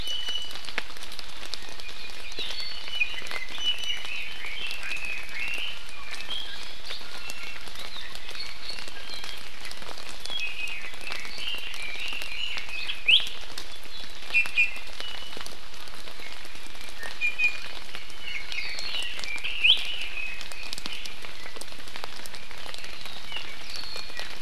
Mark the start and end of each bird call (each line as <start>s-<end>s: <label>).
0.0s-0.7s: Iiwi (Drepanis coccinea)
2.9s-4.1s: Iiwi (Drepanis coccinea)
4.0s-5.8s: Red-billed Leiothrix (Leiothrix lutea)
5.9s-7.6s: Iiwi (Drepanis coccinea)
8.9s-9.4s: Iiwi (Drepanis coccinea)
10.2s-13.1s: Red-billed Leiothrix (Leiothrix lutea)
13.1s-13.2s: Iiwi (Drepanis coccinea)
14.3s-15.5s: Iiwi (Drepanis coccinea)
17.0s-17.7s: Iiwi (Drepanis coccinea)
18.1s-18.8s: Iiwi (Drepanis coccinea)
18.8s-21.0s: Red-billed Leiothrix (Leiothrix lutea)
19.6s-19.8s: Iiwi (Drepanis coccinea)
23.9s-24.3s: Iiwi (Drepanis coccinea)